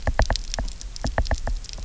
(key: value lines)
label: biophony, knock
recorder: SoundTrap 300